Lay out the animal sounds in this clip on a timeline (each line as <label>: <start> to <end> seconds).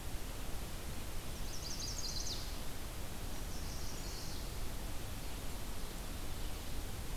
Chestnut-sided Warbler (Setophaga pensylvanica): 1.2 to 2.5 seconds
Chestnut-sided Warbler (Setophaga pensylvanica): 3.4 to 4.4 seconds